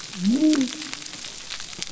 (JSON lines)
{"label": "biophony", "recorder": "SoundTrap 300"}